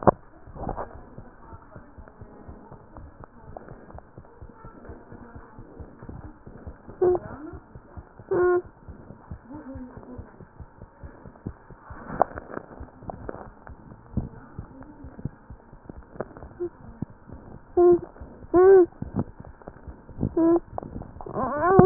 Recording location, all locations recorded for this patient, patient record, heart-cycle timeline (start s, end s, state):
mitral valve (MV)
aortic valve (AV)+mitral valve (MV)
#Age: Infant
#Sex: Male
#Height: 66.0 cm
#Weight: 9.97 kg
#Pregnancy status: False
#Murmur: Absent
#Murmur locations: nan
#Most audible location: nan
#Systolic murmur timing: nan
#Systolic murmur shape: nan
#Systolic murmur grading: nan
#Systolic murmur pitch: nan
#Systolic murmur quality: nan
#Diastolic murmur timing: nan
#Diastolic murmur shape: nan
#Diastolic murmur grading: nan
#Diastolic murmur pitch: nan
#Diastolic murmur quality: nan
#Outcome: Abnormal
#Campaign: 2015 screening campaign
0.00	1.50	unannotated
1.50	1.58	S1
1.58	1.74	systole
1.74	1.83	S2
1.83	1.96	diastole
1.96	2.05	S1
2.05	2.19	systole
2.19	2.27	S2
2.27	2.47	diastole
2.47	2.57	S1
2.57	2.70	systole
2.70	2.80	S2
2.80	2.97	diastole
2.97	3.07	S1
3.07	3.19	systole
3.19	3.27	S2
3.27	3.46	diastole
3.46	3.56	S1
3.56	3.69	systole
3.69	3.78	S2
3.78	3.93	diastole
3.93	4.00	S1
4.00	4.15	systole
4.15	4.23	S2
4.23	4.41	diastole
4.41	4.48	S1
4.48	4.63	systole
4.63	4.70	S2
4.70	4.88	diastole
4.88	4.95	S1
4.95	5.11	systole
5.11	5.16	S2
5.16	5.34	diastole
5.34	5.42	S1
5.42	5.56	systole
5.56	5.64	S2
5.64	5.77	diastole
5.77	5.84	S1
5.84	6.00	systole
6.00	6.07	S2
6.07	21.86	unannotated